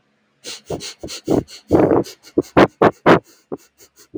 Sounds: Sniff